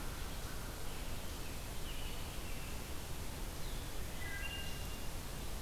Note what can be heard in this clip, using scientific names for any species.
Corvus brachyrhynchos, Vireo solitarius, Turdus migratorius, Hylocichla mustelina